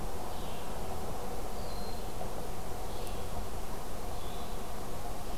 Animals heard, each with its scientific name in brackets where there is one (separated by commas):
Red-eyed Vireo (Vireo olivaceus), Eastern Wood-Pewee (Contopus virens)